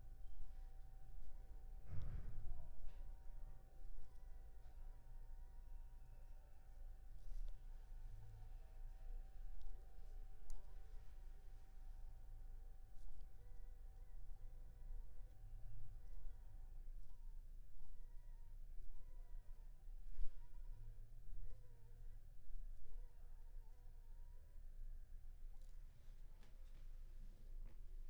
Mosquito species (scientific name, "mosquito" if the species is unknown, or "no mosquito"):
Anopheles funestus s.s.